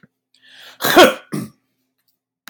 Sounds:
Sneeze